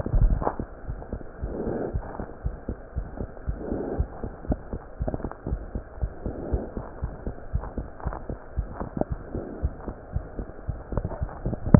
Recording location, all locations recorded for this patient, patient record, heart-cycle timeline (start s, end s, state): aortic valve (AV)
aortic valve (AV)+pulmonary valve (PV)+tricuspid valve (TV)+mitral valve (MV)
#Age: Child
#Sex: Female
#Height: 74.0 cm
#Weight: 7.8 kg
#Pregnancy status: False
#Murmur: Present
#Murmur locations: tricuspid valve (TV)
#Most audible location: tricuspid valve (TV)
#Systolic murmur timing: Early-systolic
#Systolic murmur shape: Decrescendo
#Systolic murmur grading: I/VI
#Systolic murmur pitch: Low
#Systolic murmur quality: Blowing
#Diastolic murmur timing: nan
#Diastolic murmur shape: nan
#Diastolic murmur grading: nan
#Diastolic murmur pitch: nan
#Diastolic murmur quality: nan
#Outcome: Abnormal
#Campaign: 2015 screening campaign
0.00	2.43	unannotated
2.43	2.56	S1
2.56	2.69	systole
2.69	2.78	S2
2.78	2.96	diastole
2.96	3.08	S1
3.08	3.21	systole
3.21	3.30	S2
3.30	3.46	diastole
3.46	3.56	S1
3.56	3.70	systole
3.70	3.77	S2
3.77	3.98	diastole
3.98	4.08	S1
4.08	4.23	systole
4.23	4.32	S2
4.32	4.48	diastole
4.48	4.60	S1
4.60	4.70	systole
4.70	4.80	S2
4.80	5.00	diastole
5.00	5.14	S1
5.14	5.23	systole
5.23	5.32	S2
5.32	5.50	diastole
5.50	5.62	S1
5.62	5.72	systole
5.72	5.82	S2
5.82	5.99	diastole
5.99	6.12	S1
6.12	6.24	systole
6.24	6.36	S2
6.36	6.50	diastole
6.50	6.62	S1
6.62	6.75	systole
6.75	6.86	S2
6.86	7.00	diastole
7.00	7.14	S1
7.14	7.25	systole
7.25	7.36	S2
7.36	7.51	diastole
7.51	7.64	S1
7.64	7.75	systole
7.75	7.86	S2
7.86	8.03	diastole
8.03	8.14	S1
8.14	8.27	systole
8.27	8.36	S2
8.36	8.56	diastole
8.56	8.68	S1
8.68	8.80	systole
8.80	8.88	S2
8.88	9.08	diastole
9.08	9.18	S1
9.18	9.33	systole
9.33	9.42	S2
9.42	9.59	diastole
9.59	9.72	S1
9.72	9.85	systole
9.85	9.96	S2
9.96	10.13	diastole
10.13	10.26	S1
10.26	10.36	systole
10.36	10.46	S2
10.46	10.66	diastole
10.66	10.80	S1
10.80	11.79	unannotated